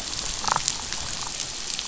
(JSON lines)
{"label": "biophony, damselfish", "recorder": "SoundTrap 500"}